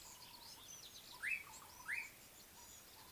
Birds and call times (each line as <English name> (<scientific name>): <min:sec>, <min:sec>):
Slate-colored Boubou (Laniarius funebris): 0:01.2